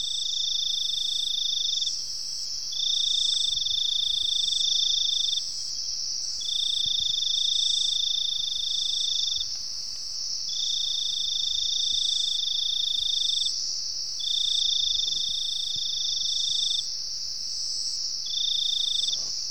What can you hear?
Teleogryllus mitratus, an orthopteran